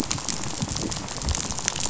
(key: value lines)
label: biophony, rattle
recorder: SoundTrap 500